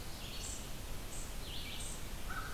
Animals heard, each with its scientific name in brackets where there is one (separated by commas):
unknown mammal, American Crow (Corvus brachyrhynchos), Red-eyed Vireo (Vireo olivaceus)